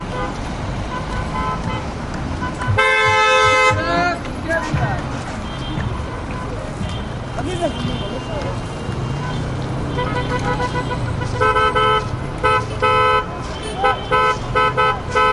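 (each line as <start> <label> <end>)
0.0 Car engines running. 15.3
0.1 A car honks. 0.3
0.9 A car horn honks repeatedly. 1.8
2.4 A car horn honks repeatedly. 2.8
2.8 A car horn honks loudly. 3.7
3.8 A man is yelling. 4.2
4.5 A man is speaking. 5.2
5.4 A car horn honks with a high pitch in the distance. 5.9
5.5 Traffic noise can be heard in the distance. 9.9
7.3 An indistinct male voice is heard in the distance. 8.5
9.9 A car horn honks repeatedly. 11.0
11.3 A car horn honks loudly and repeatedly. 12.1
12.4 A car horn honks loudly. 13.3
13.8 A car horn honks repeatedly. 15.3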